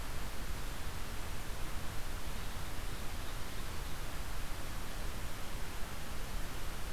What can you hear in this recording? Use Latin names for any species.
forest ambience